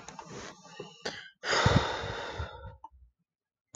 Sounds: Sigh